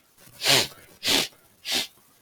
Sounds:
Sniff